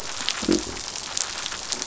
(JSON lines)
{"label": "biophony", "recorder": "SoundTrap 500"}